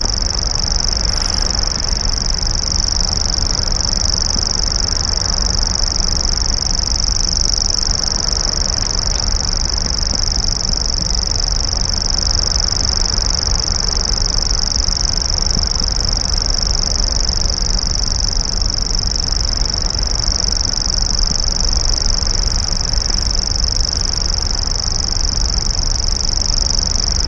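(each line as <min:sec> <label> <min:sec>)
0:00.0 Several Common Grasshopper Warblers are singing in nature. 0:27.3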